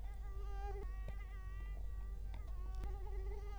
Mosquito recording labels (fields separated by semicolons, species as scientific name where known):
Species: Culex quinquefasciatus; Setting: cup